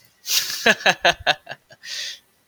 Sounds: Laughter